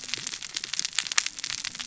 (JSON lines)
{"label": "biophony, cascading saw", "recorder": "SoundTrap 600 or HydroMoth"}